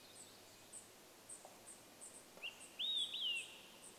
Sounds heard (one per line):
Red-breasted Nuthatch song
warbler song
Olive-sided Flycatcher song
unidentified bird chip note